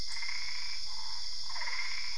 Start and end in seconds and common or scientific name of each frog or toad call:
0.0	2.1	Boana albopunctata
1.5	2.1	Physalaemus cuvieri